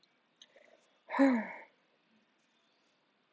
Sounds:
Sigh